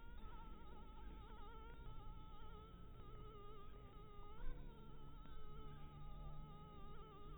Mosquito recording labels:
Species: Anopheles dirus; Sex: female; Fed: blood-fed; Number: one; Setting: cup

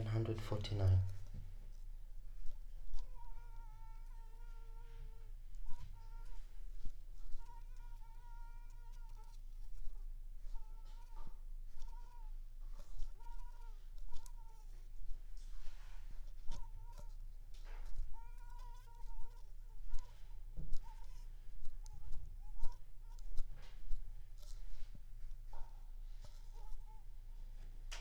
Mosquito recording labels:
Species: Anopheles squamosus; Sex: female; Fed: unfed; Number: one; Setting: cup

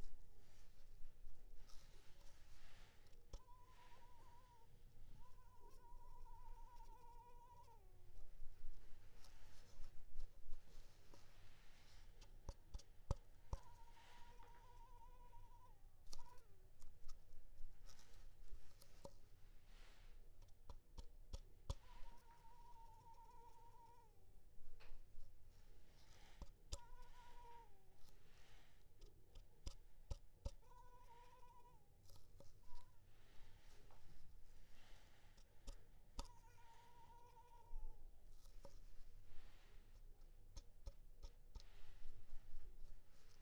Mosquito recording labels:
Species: Culex pipiens complex; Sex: female; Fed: unfed; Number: one; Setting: cup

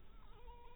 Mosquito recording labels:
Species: mosquito; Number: one; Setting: cup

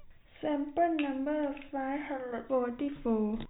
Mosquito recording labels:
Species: no mosquito; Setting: cup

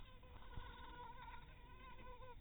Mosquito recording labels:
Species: mosquito; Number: one; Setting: cup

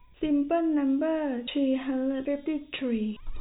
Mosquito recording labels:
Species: no mosquito; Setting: cup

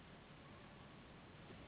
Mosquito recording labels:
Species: Anopheles gambiae s.s.; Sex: female; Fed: unfed; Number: one; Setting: insect culture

